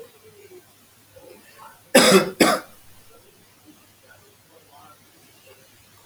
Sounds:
Cough